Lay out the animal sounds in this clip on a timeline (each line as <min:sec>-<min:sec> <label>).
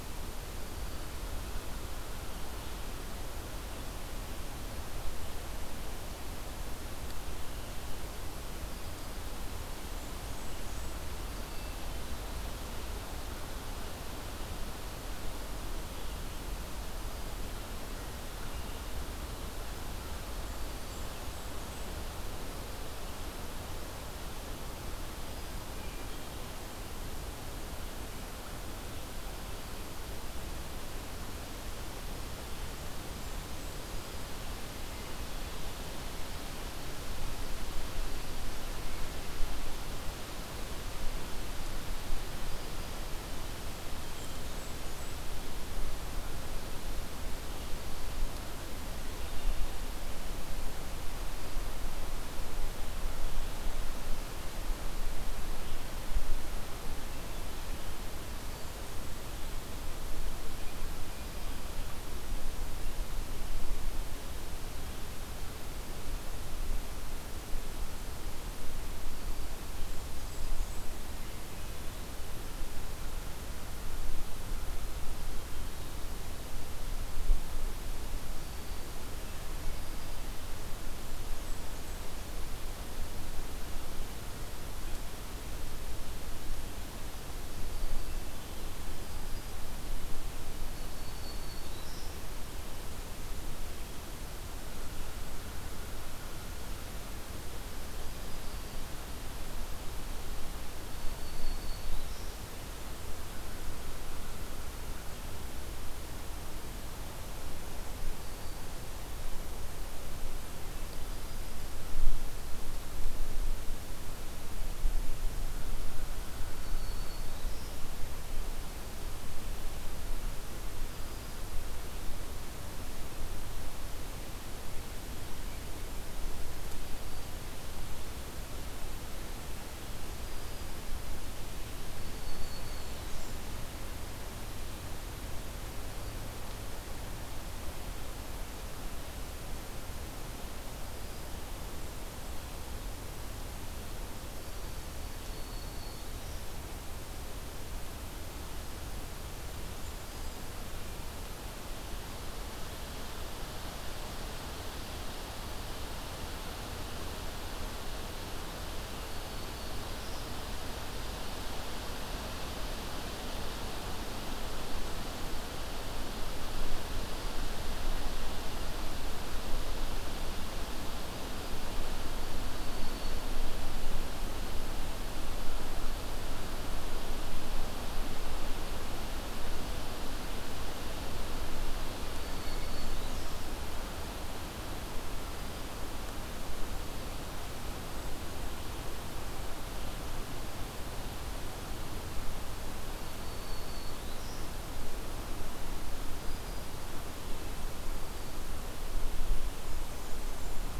0:09.7-0:11.0 Blackburnian Warbler (Setophaga fusca)
0:20.1-0:22.0 Blackburnian Warbler (Setophaga fusca)
0:43.9-0:45.3 Blackburnian Warbler (Setophaga fusca)
1:09.8-1:10.9 Blackburnian Warbler (Setophaga fusca)
1:20.9-1:22.1 Blackburnian Warbler (Setophaga fusca)
1:30.6-1:32.4 Black-throated Green Warbler (Setophaga virens)
1:40.6-1:42.5 Black-throated Green Warbler (Setophaga virens)
1:56.4-1:58.2 Black-throated Green Warbler (Setophaga virens)
2:12.0-2:13.4 Black-throated Green Warbler (Setophaga virens)
2:12.1-2:13.4 Blackburnian Warbler (Setophaga fusca)
2:25.0-2:26.5 Black-throated Green Warbler (Setophaga virens)
2:38.9-2:40.3 Black-throated Green Warbler (Setophaga virens)
2:52.2-2:53.7 Black-throated Green Warbler (Setophaga virens)
3:02.1-3:03.4 Black-throated Green Warbler (Setophaga virens)
3:12.7-3:14.7 Black-throated Green Warbler (Setophaga virens)